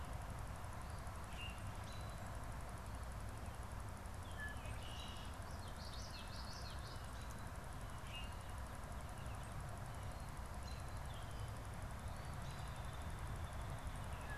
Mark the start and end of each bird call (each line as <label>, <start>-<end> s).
Common Grackle (Quiscalus quiscula), 1.1-1.7 s
Red-winged Blackbird (Agelaius phoeniceus), 4.2-5.5 s
Common Yellowthroat (Geothlypis trichas), 5.4-7.4 s
Common Grackle (Quiscalus quiscula), 8.0-8.4 s
American Robin (Turdus migratorius), 10.6-10.9 s